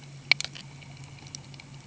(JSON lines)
{"label": "anthrophony, boat engine", "recorder": "HydroMoth"}